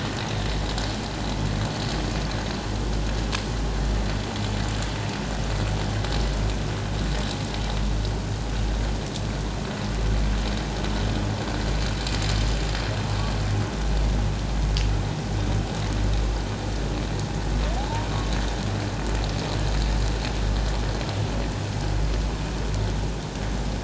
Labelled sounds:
17.8	18.1	humpback whale, 0.78 to 1.0 kHz

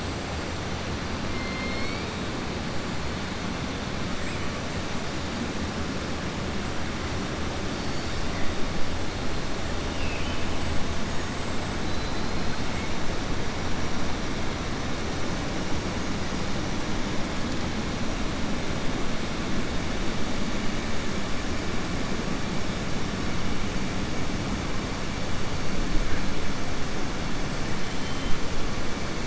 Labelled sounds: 11.8	12.6	killer whale, southern resident, 3.9 to 4.7 kHz

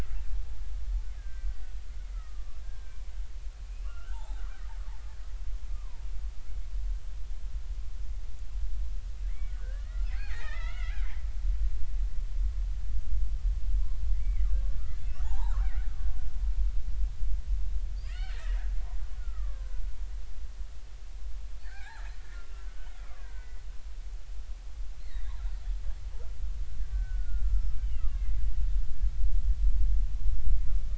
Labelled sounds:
1.2	3.0	killer whale, Bigg's (transient), 1.2 to 1.7 kHz
3.7	4.4	killer whale, Bigg's (transient), 0.80 to 2.9 kHz
5.7	6.0	killer whale, Bigg's (transient), 0.86 to 1.2 kHz
9.3	11.2	killer whale, Bigg's (transient), 0.80 to 3.8 kHz
14.2	15.9	killer whale, Bigg's (transient), 0.80 to 2.5 kHz
18.0	19.8	killer whale, Bigg's (transient), 0.96 to 4.7 kHz
21.6	23.6	killer whale, Bigg's (transient), 0.80 to 2.9 kHz
25.0	25.4	killer whale, Bigg's (transient), 1.7 to 4.0 kHz
26.9	28.4	killer whale, Bigg's (transient), 1.1 to 5.4 kHz

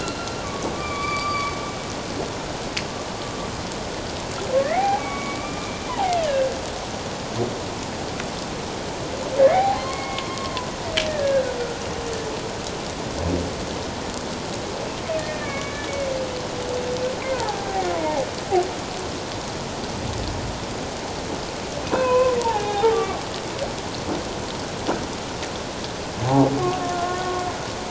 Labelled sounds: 0.0	1.5	humpback whale, 1.0 to 4.8 kHz
4.6	6.5	humpback whale, 0.78 to 2.4 kHz
9.4	10.5	humpback whale, 0.78 to 4.5 kHz
11.1	11.6	humpback whale, 1.4 to 1.9 kHz
15.2	15.9	humpback whale, 1.1 to 2.5 kHz
17.3	18.2	humpback whale, 0.78 to 1.1 kHz
21.8	23.2	humpback whale, 0.78 to 2.7 kHz
26.9	27.3	humpback whale, 1.0 to 1.5 kHz

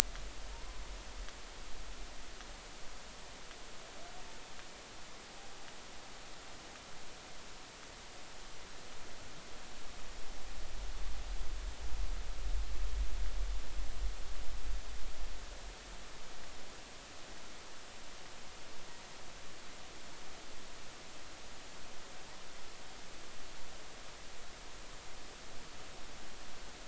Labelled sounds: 0.5	0.8	humpback whale, 0.86 to 1.1 kHz

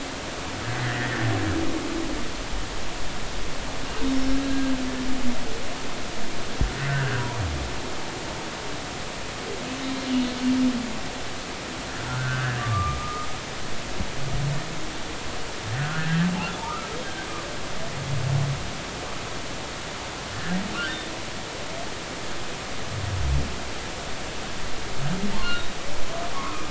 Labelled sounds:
0.7	1.3	humpback whale, 1.7 to 2.1 kHz
4.1	4.4	humpback whale, 5.2 to 5.4 kHz
7.7	8.2	humpback whale, 1.4 to 2.0 kHz
12.1	13.3	humpback whale, 1.1 to 1.8 kHz
16.6	17.2	humpback whale, 1.1 to 3.3 kHz
20.3	20.6	humpback whale, 1.5 to 1.8 kHz
25.5	26.6	humpback whale, 0.99 to 3.9 kHz

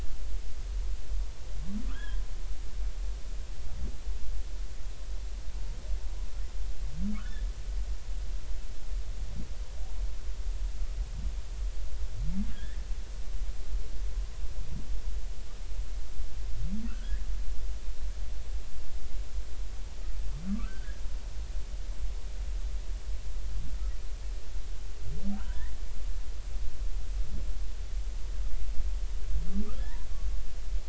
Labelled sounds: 1.9	2.2	humpback whale, 1.2 to 3.5 kHz
12.5	12.8	humpback whale, 1.6 to 2.0 kHz
16.9	17.3	humpback whale, 1.2 to 1.9 kHz
20.6	21.0	humpback whale, 1.4 to 1.9 kHz
25.4	25.7	humpback whale, 0.90 to 2.0 kHz
29.8	30.0	humpback whale, 1.6 to 2.1 kHz

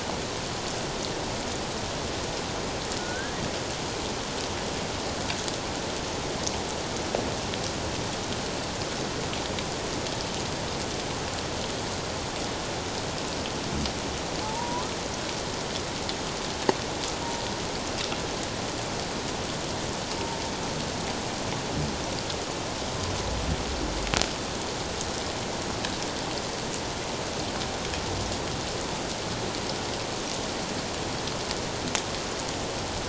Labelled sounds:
3.0	3.4	humpback whale, 1.4 to 1.7 kHz
14.4	14.9	humpback whale, 0.81 to 1.1 kHz

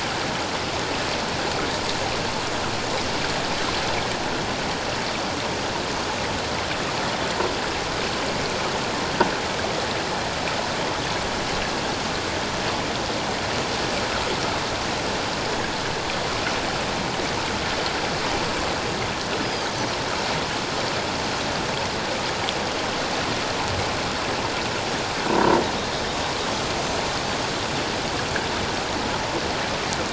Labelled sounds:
19.4	19.7	Pacific white-sided dolphin, 4.6 to 5.0 kHz
25.3	25.6	croaking sound likely from a nearby submerged object, 0.91 to 1.0 kHz

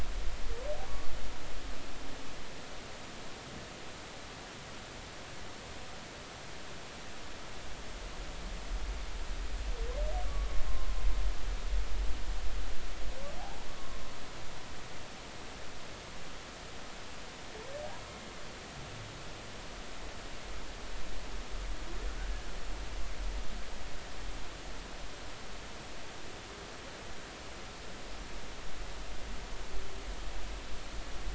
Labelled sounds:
10.3	10.9	humpback whale, 0.99 to 1.2 kHz

